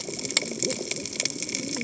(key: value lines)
label: biophony, cascading saw
recorder: HydroMoth